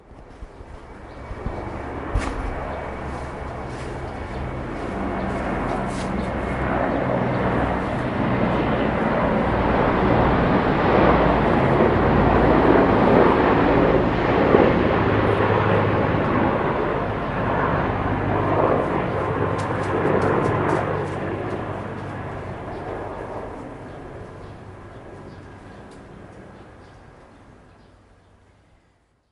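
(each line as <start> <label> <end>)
1.3 A small helicopter is approaching. 14.6
1.8 Footsteps on soft ground. 2.6
5.7 Footsteps on soft ground. 6.5
12.8 A small helicopter is moving away. 29.3
19.5 Footsteps on soft ground. 21.5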